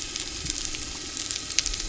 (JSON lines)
{"label": "anthrophony, boat engine", "recorder": "SoundTrap 300"}